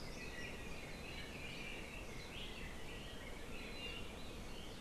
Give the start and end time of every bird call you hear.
0.0s-3.4s: Red-billed Leiothrix (Leiothrix lutea)
3.6s-4.0s: Iiwi (Drepanis coccinea)

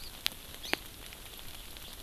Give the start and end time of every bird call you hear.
0.0s-0.1s: Hawaii Amakihi (Chlorodrepanis virens)
0.6s-0.8s: Hawaii Amakihi (Chlorodrepanis virens)

